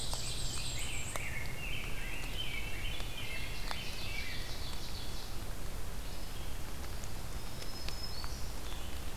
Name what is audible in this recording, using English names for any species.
Ovenbird, Black-and-white Warbler, Rose-breasted Grosbeak, Red-breasted Nuthatch, Black-throated Green Warbler